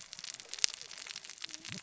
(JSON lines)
{"label": "biophony, cascading saw", "recorder": "SoundTrap 600 or HydroMoth"}